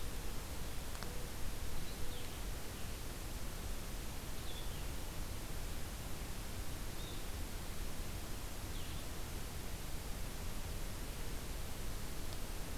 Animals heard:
Mourning Dove (Zenaida macroura), Blue-headed Vireo (Vireo solitarius)

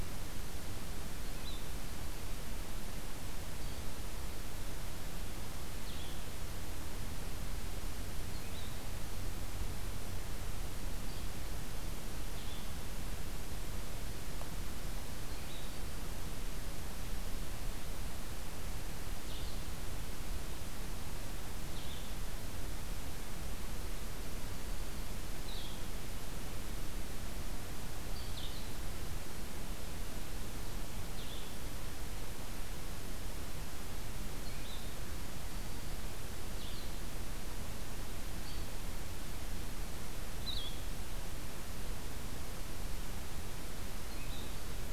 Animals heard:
Blue-headed Vireo (Vireo solitarius)

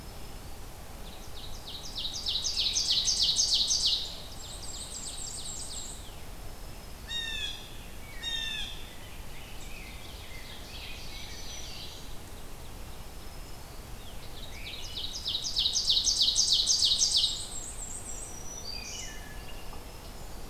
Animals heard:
Black-throated Green Warbler (Setophaga virens), Black-and-white Warbler (Mniotilta varia), Ovenbird (Seiurus aurocapilla), Wood Thrush (Hylocichla mustelina), Blue Jay (Cyanocitta cristata), Rose-breasted Grosbeak (Pheucticus ludovicianus)

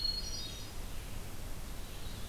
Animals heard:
Red-eyed Vireo (Vireo olivaceus), Hermit Thrush (Catharus guttatus)

